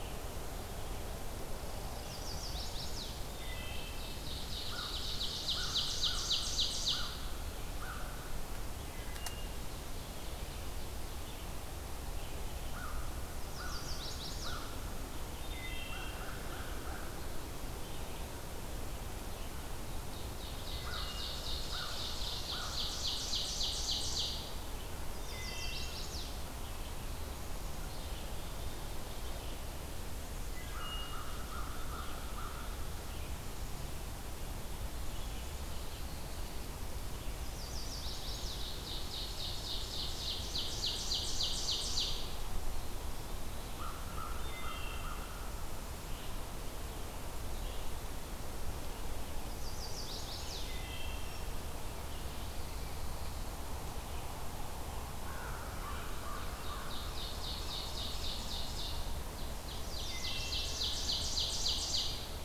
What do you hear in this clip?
Red-eyed Vireo, Chestnut-sided Warbler, Wood Thrush, Ovenbird, American Crow